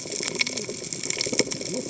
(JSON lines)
{"label": "biophony, cascading saw", "recorder": "HydroMoth"}